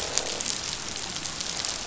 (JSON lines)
{"label": "biophony, croak", "recorder": "SoundTrap 500"}